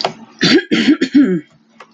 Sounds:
Throat clearing